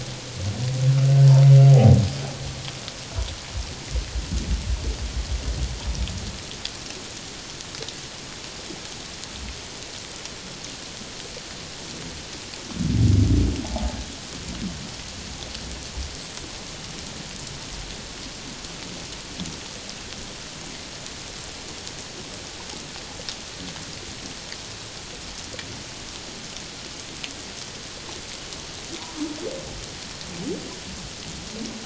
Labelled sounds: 1.7	2.0	humpback whale, 0.78 to 0.84 kHz

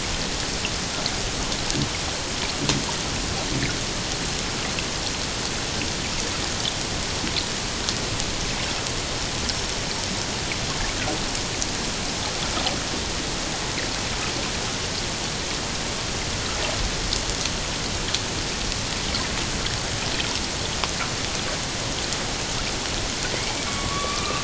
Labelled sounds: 23.3	24.4	killer whale, Bigg's (transient), 1.1 to 2.5 kHz

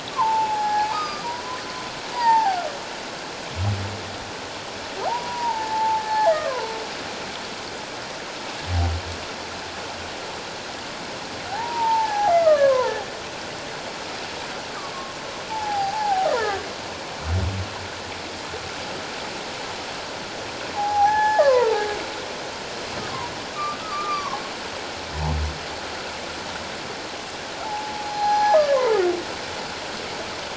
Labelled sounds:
0.1	1.6	humpback whale, 0.78 to 5.1 kHz
2.1	2.6	humpback whale, 0.78 to 4.9 kHz
5.0	6.7	humpback whale, 0.78 to 1.8 kHz
11.5	12.9	humpback whale, 0.78 to 1.9 kHz
15.5	16.6	humpback whale, 0.78 to 1.5 kHz
20.7	21.8	humpback whale, 0.78 to 6.0 kHz
23.8	24.4	humpback whale, 0.78 to 1.3 kHz
27.6	28.8	humpback whale, 0.78 to 5.9 kHz

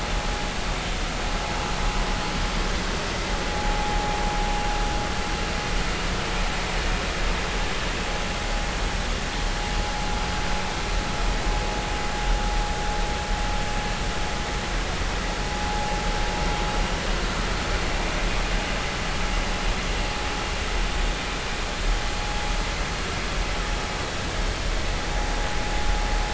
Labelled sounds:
3.5	4.0	vessel noise, 0.80 to 0.90 kHz

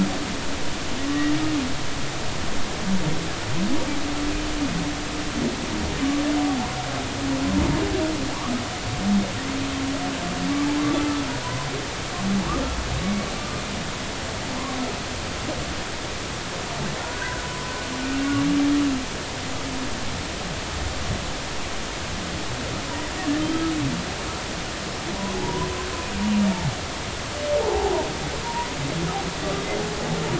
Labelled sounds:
17.0	17.4	humpback whale, 1.3 to 1.7 kHz
25.3	25.7	humpback whale, 0.80 to 1.1 kHz
27.6	27.9	humpback whale, 0.80 to 0.96 kHz

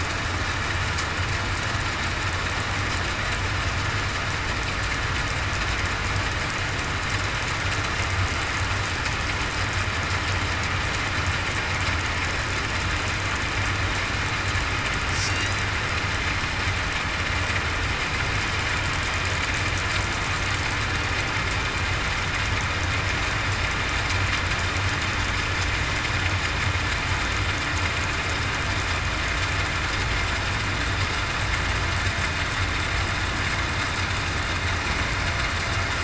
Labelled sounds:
15.1	15.5	killer whale, southern resident, 4.5 to 4.7 kHz

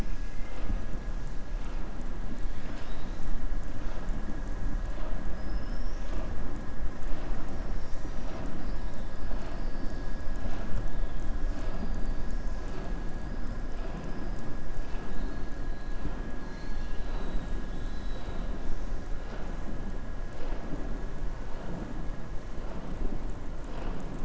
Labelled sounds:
16.4	17.5	killer whale, southern resident, 0.74 to 4.8 kHz

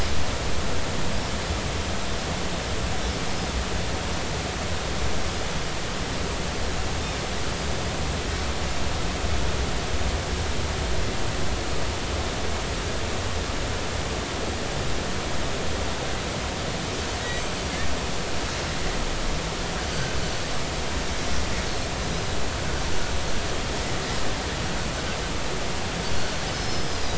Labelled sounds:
19.9	20.2	Pacific white-sided dolphin, 1.4 to 1.6 kHz
26.5	27.1	Pacific white-sided dolphin, 4.8 to 5.3 kHz

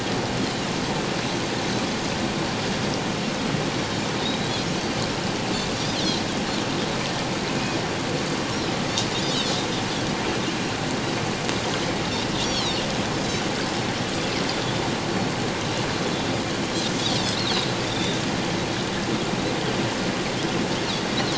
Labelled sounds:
9.2	9.6	Pacific white-sided dolphin, 3.2 to 4.6 kHz
12.3	12.8	Pacific white-sided dolphin, 3.0 to 4.7 kHz
17.9	18.2	Pacific white-sided dolphin, 3.4 to 3.8 kHz

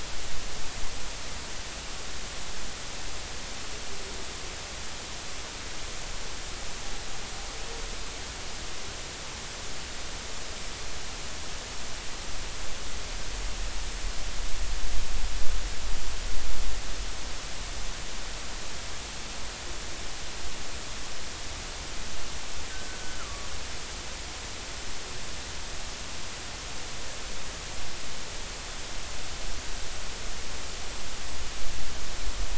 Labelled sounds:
22.7	23.5	killer whale, northern resident, G clan, GG subclan, call N23ii, 1.1 to 1.6 kHz

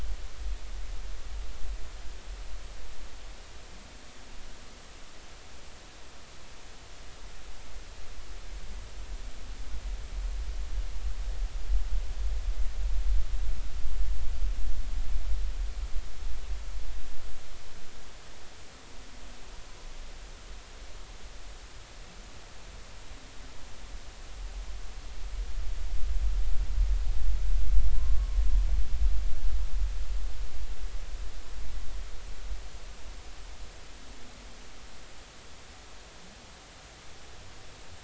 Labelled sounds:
27.9	28.4	humpback whale, 0.86 to 1.2 kHz

